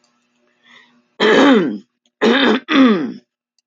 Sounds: Throat clearing